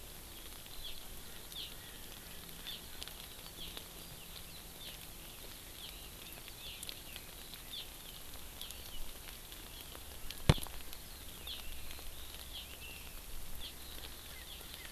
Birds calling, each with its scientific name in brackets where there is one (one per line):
Erckel's Francolin (Pternistis erckelii)